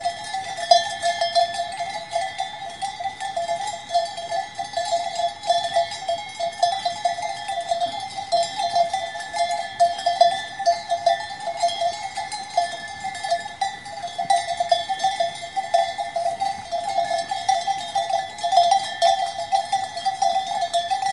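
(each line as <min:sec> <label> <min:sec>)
0:00.1 Metallic clattering caused by wind, producing irregular light to mid-pitched impacts like tin cans or loose metal objects knocking against each other. 0:21.1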